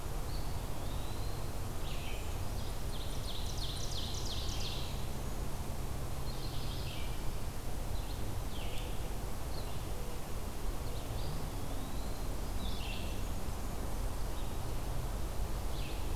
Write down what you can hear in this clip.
Red-eyed Vireo, Eastern Wood-Pewee, Ovenbird, Blackburnian Warbler